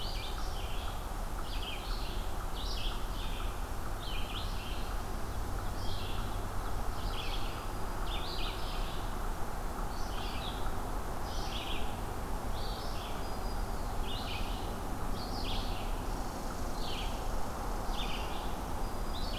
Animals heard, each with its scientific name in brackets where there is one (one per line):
Red-eyed Vireo (Vireo olivaceus)
Red Squirrel (Tamiasciurus hudsonicus)
Black-throated Green Warbler (Setophaga virens)